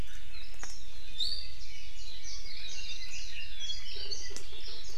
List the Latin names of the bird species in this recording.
Drepanis coccinea, Zosterops japonicus, Leiothrix lutea